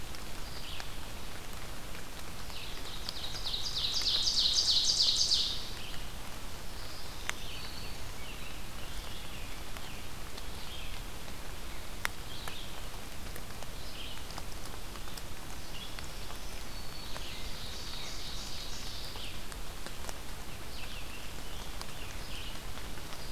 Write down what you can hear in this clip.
Red-eyed Vireo, Ovenbird, Eastern Wood-Pewee, Black-throated Green Warbler, Scarlet Tanager